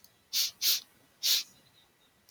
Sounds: Sniff